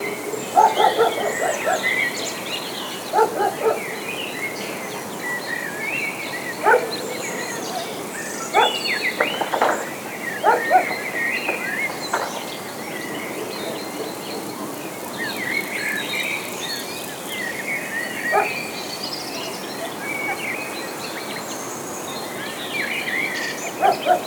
What animal is singing in the distance?
bird